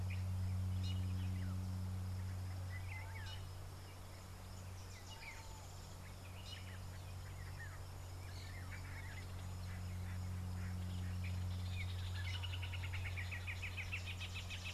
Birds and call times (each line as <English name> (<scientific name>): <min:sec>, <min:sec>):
Northern Brownbul (Phyllastrephus strepitans): 0:13.6